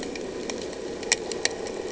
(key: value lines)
label: anthrophony, boat engine
recorder: HydroMoth